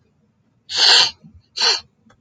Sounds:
Sniff